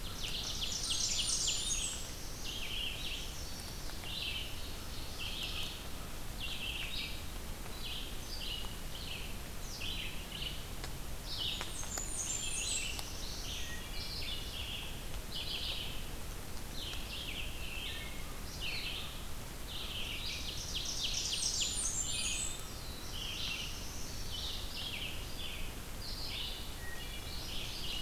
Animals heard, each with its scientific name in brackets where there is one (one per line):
Red-eyed Vireo (Vireo olivaceus)
Blackburnian Warbler (Setophaga fusca)
Wood Thrush (Hylocichla mustelina)
Ovenbird (Seiurus aurocapilla)
Black-throated Blue Warbler (Setophaga caerulescens)
Chestnut-sided Warbler (Setophaga pensylvanica)